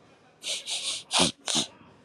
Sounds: Sniff